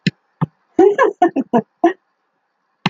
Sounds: Laughter